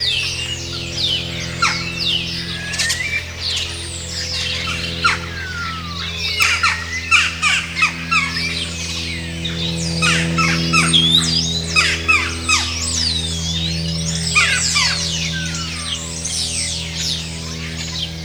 What is chirping?
birds